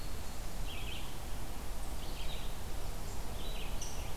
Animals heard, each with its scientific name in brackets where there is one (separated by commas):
Red-eyed Vireo (Vireo olivaceus), Rose-breasted Grosbeak (Pheucticus ludovicianus)